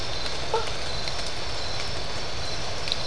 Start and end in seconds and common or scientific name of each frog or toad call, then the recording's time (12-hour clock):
0.5	0.8	blacksmith tree frog
3:15am